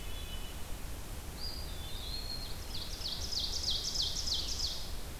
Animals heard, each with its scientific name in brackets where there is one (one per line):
Blue-headed Vireo (Vireo solitarius)
Ovenbird (Seiurus aurocapilla)
Eastern Wood-Pewee (Contopus virens)
Hermit Thrush (Catharus guttatus)